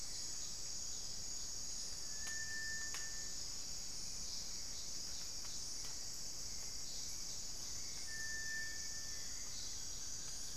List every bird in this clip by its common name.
Cinereous Tinamou, Hauxwell's Thrush, Buff-throated Woodcreeper